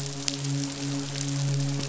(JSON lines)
{"label": "biophony, midshipman", "recorder": "SoundTrap 500"}